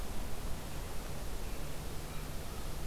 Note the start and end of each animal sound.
1.9s-2.7s: American Crow (Corvus brachyrhynchos)

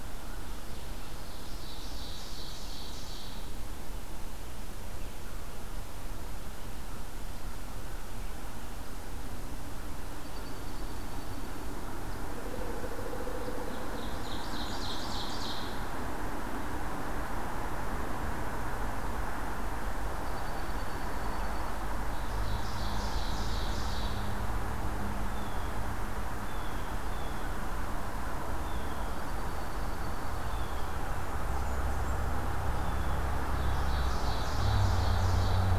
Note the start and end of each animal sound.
0.0s-0.7s: American Crow (Corvus brachyrhynchos)
0.7s-3.3s: Ovenbird (Seiurus aurocapilla)
10.1s-11.8s: Dark-eyed Junco (Junco hyemalis)
12.5s-14.2s: Pileated Woodpecker (Dryocopus pileatus)
13.3s-15.8s: Ovenbird (Seiurus aurocapilla)
14.1s-15.3s: Blackburnian Warbler (Setophaga fusca)
20.1s-21.8s: Dark-eyed Junco (Junco hyemalis)
22.3s-24.3s: Ovenbird (Seiurus aurocapilla)
25.2s-33.3s: Blue Jay (Cyanocitta cristata)
29.0s-30.6s: Dark-eyed Junco (Junco hyemalis)
30.9s-32.4s: Blackburnian Warbler (Setophaga fusca)
33.2s-35.8s: Ovenbird (Seiurus aurocapilla)

